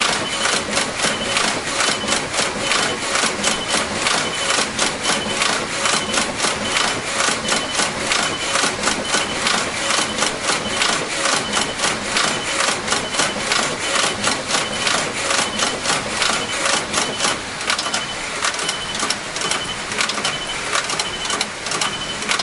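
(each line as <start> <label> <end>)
0.0 A sewing machine hums with a beeping sound at a constant rate. 22.4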